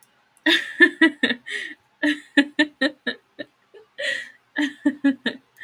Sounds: Laughter